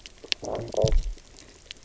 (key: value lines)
label: biophony, low growl
recorder: SoundTrap 300